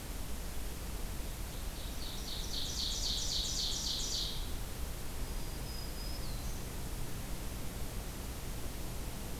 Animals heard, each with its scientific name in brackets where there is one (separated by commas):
Black-throated Green Warbler (Setophaga virens), Ovenbird (Seiurus aurocapilla)